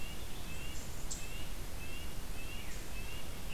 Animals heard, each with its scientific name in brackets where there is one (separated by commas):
Black-capped Chickadee (Poecile atricapillus), Red-breasted Nuthatch (Sitta canadensis)